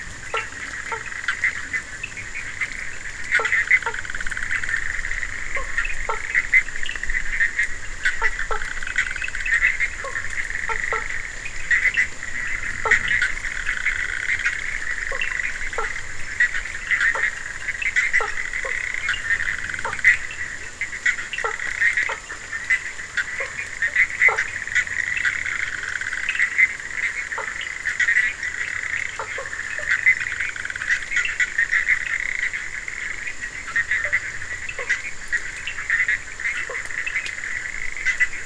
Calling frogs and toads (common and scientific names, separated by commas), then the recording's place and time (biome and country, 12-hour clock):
Bischoff's tree frog (Boana bischoffi), Cochran's lime tree frog (Sphaenorhynchus surdus), blacksmith tree frog (Boana faber)
Atlantic Forest, Brazil, 12:30am